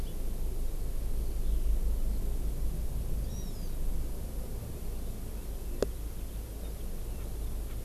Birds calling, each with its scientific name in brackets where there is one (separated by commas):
Erckel's Francolin (Pternistis erckelii), Hawaii Amakihi (Chlorodrepanis virens), Eurasian Skylark (Alauda arvensis)